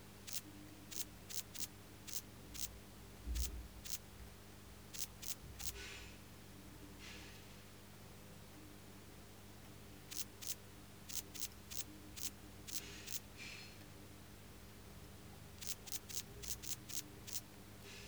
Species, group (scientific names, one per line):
Tessellana lagrecai
Orthoptera